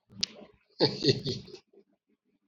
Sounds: Laughter